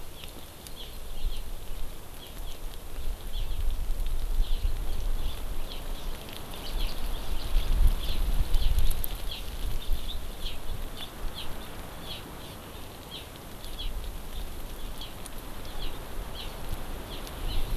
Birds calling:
Hawaii Amakihi (Chlorodrepanis virens)

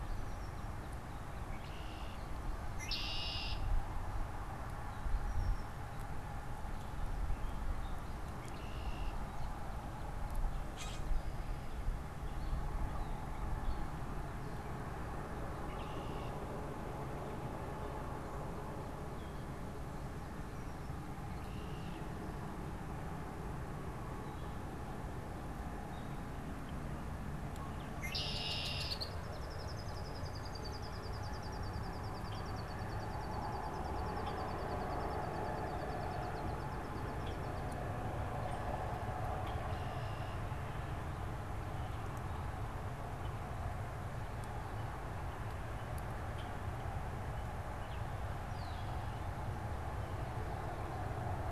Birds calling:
Baltimore Oriole (Icterus galbula), Common Grackle (Quiscalus quiscula), Red-winged Blackbird (Agelaius phoeniceus)

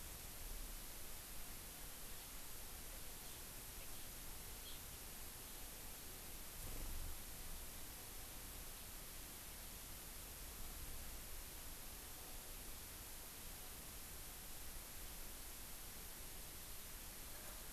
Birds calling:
Hawaii Amakihi (Chlorodrepanis virens)

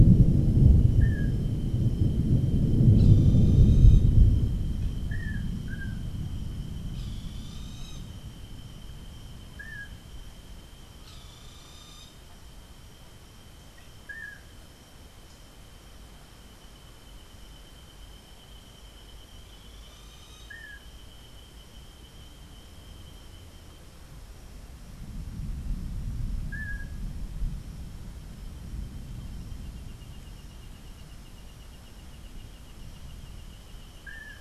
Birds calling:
Boat-billed Flycatcher (Megarynchus pitangua), Long-tailed Manakin (Chiroxiphia linearis)

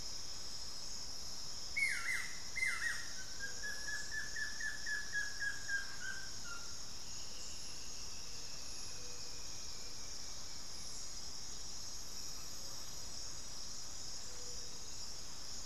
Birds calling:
Elegant Woodcreeper (Xiphorhynchus elegans), Buff-throated Woodcreeper (Xiphorhynchus guttatus)

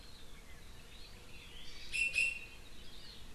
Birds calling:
Iiwi (Drepanis coccinea)

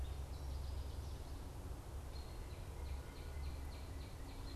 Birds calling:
American Robin (Turdus migratorius), Northern Waterthrush (Parkesia noveboracensis), Northern Cardinal (Cardinalis cardinalis)

